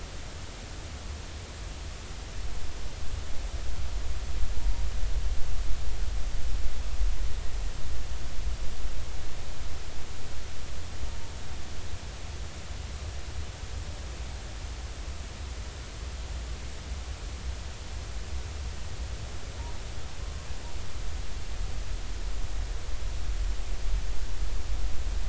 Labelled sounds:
20.2	20.5	humpback whale, 0.99 to 1.1 kHz

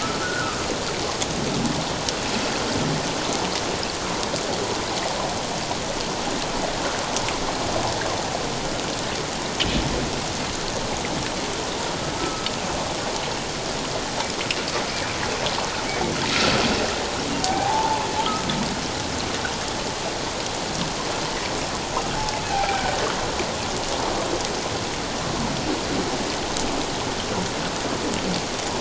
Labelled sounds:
0.0	0.6	humpback whale, 1.2 to 1.5 kHz
12.2	12.5	humpback whale, 1.2 to 1.4 kHz
17.4	18.0	humpback whale, 0.78 to 1.1 kHz
22.5	22.8	humpback whale, 0.78 to 2.5 kHz

